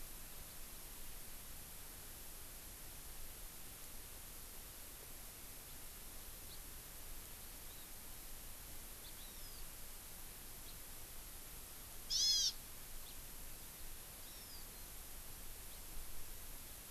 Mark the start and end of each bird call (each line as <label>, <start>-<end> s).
House Finch (Haemorhous mexicanus), 6.5-6.6 s
House Finch (Haemorhous mexicanus), 9.0-9.1 s
Hawaii Amakihi (Chlorodrepanis virens), 9.2-9.6 s
House Finch (Haemorhous mexicanus), 10.6-10.7 s
Hawaii Amakihi (Chlorodrepanis virens), 12.1-12.6 s
House Finch (Haemorhous mexicanus), 13.0-13.1 s
Hawaii Amakihi (Chlorodrepanis virens), 14.2-14.6 s